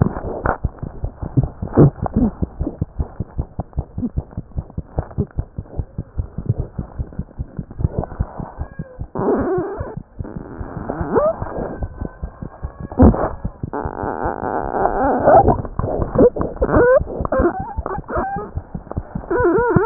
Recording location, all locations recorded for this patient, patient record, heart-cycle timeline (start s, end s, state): mitral valve (MV)
aortic valve (AV)+mitral valve (MV)
#Age: Neonate
#Sex: Female
#Height: 49.0 cm
#Weight: 3.365 kg
#Pregnancy status: False
#Murmur: Present
#Murmur locations: mitral valve (MV)
#Most audible location: mitral valve (MV)
#Systolic murmur timing: Early-systolic
#Systolic murmur shape: Decrescendo
#Systolic murmur grading: I/VI
#Systolic murmur pitch: Low
#Systolic murmur quality: Blowing
#Diastolic murmur timing: nan
#Diastolic murmur shape: nan
#Diastolic murmur grading: nan
#Diastolic murmur pitch: nan
#Diastolic murmur quality: nan
#Outcome: Abnormal
#Campaign: 2015 screening campaign
0.00	2.95	unannotated
2.95	3.05	S1
3.05	3.18	systole
3.18	3.25	S2
3.25	3.36	diastole
3.36	3.43	S1
3.43	3.57	systole
3.57	3.65	S2
3.65	3.75	diastole
3.75	3.83	S1
3.83	3.95	systole
3.95	4.02	S2
4.02	4.15	diastole
4.15	4.23	S1
4.23	4.36	systole
4.36	4.42	S2
4.42	4.55	diastole
4.55	4.63	S1
4.63	4.77	systole
4.77	4.83	S2
4.83	4.95	diastole
4.95	5.05	S1
5.05	5.17	systole
5.17	5.24	S2
5.24	5.36	diastole
5.36	5.45	S1
5.45	5.57	systole
5.57	5.63	S2
5.63	5.76	diastole
5.76	5.87	S1
5.87	5.96	systole
5.96	6.04	S2
6.04	6.16	diastole
6.16	6.26	S1
6.26	6.37	systole
6.37	6.43	S2
6.43	6.57	diastole
6.57	6.67	S1
6.67	6.77	systole
6.77	6.84	S2
6.84	6.97	diastole
6.97	7.05	S1
7.05	7.17	systole
7.17	7.25	S2
7.25	7.37	diastole
7.37	7.45	S1
7.45	7.56	systole
7.56	7.65	S2
7.65	7.78	diastole
7.78	7.86	S1
7.86	7.97	systole
7.97	8.03	S2
8.03	8.17	diastole
8.17	8.26	S1
8.26	8.37	systole
8.37	8.45	S2
8.45	8.57	diastole
8.57	8.66	S1
8.66	8.77	systole
8.77	8.86	S2
8.86	8.97	diastole
8.97	9.08	S1
9.08	19.86	unannotated